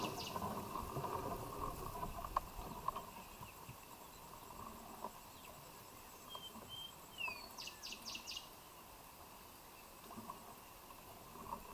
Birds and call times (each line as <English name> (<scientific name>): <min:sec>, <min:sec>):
Cinnamon Bracken-Warbler (Bradypterus cinnamomeus): 0:07.8